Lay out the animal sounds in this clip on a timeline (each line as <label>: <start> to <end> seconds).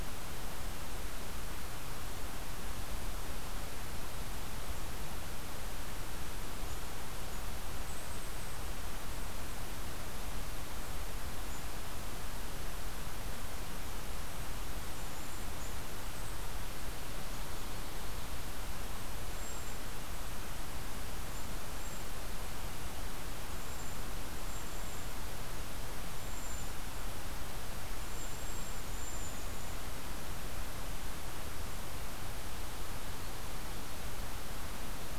Golden-crowned Kinglet (Regulus satrapa): 6.5 to 22.7 seconds
Cedar Waxwing (Bombycilla cedrorum): 19.3 to 19.8 seconds
Cedar Waxwing (Bombycilla cedrorum): 21.7 to 22.0 seconds
Cedar Waxwing (Bombycilla cedrorum): 23.4 to 25.2 seconds
Cedar Waxwing (Bombycilla cedrorum): 26.1 to 27.1 seconds
Cedar Waxwing (Bombycilla cedrorum): 27.9 to 29.8 seconds